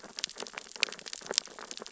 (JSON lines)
{"label": "biophony, sea urchins (Echinidae)", "recorder": "SoundTrap 600 or HydroMoth"}